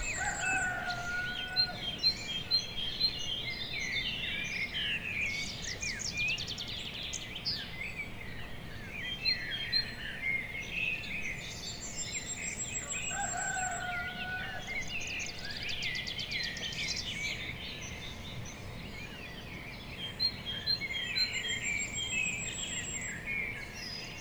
Is this inside?
no